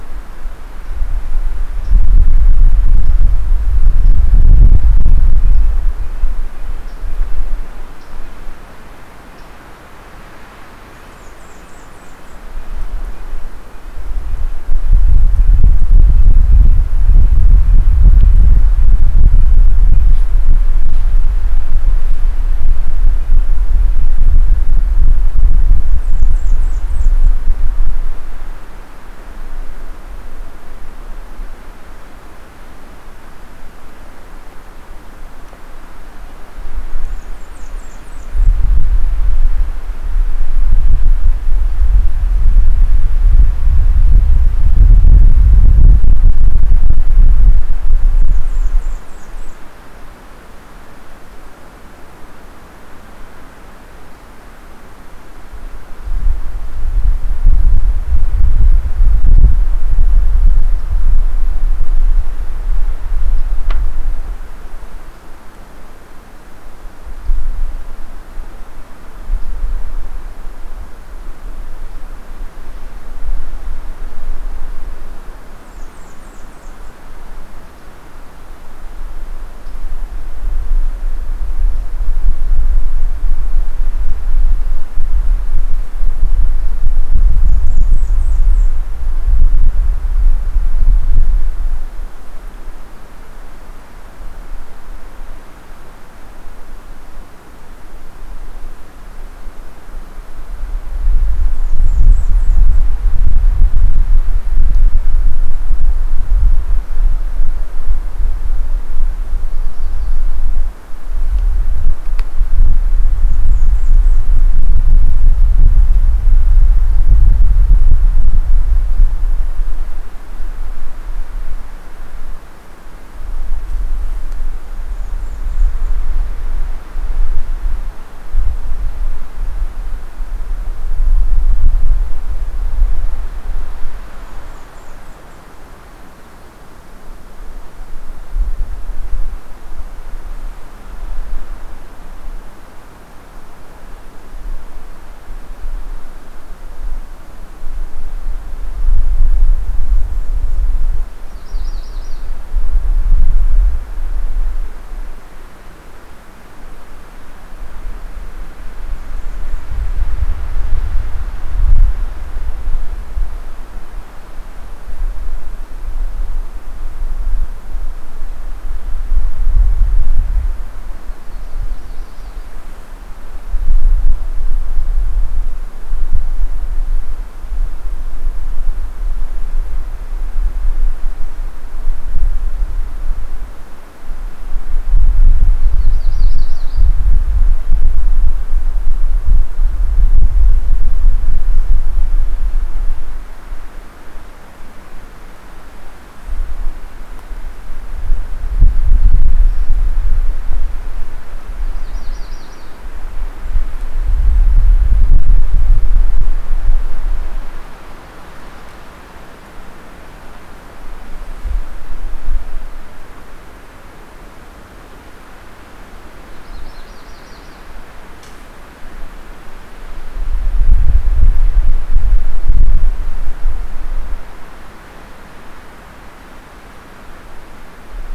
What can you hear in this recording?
Red-breasted Nuthatch, Blackburnian Warbler, Yellow-rumped Warbler